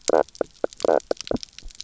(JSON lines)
{"label": "biophony, knock croak", "recorder": "SoundTrap 300"}